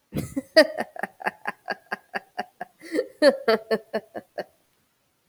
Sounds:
Laughter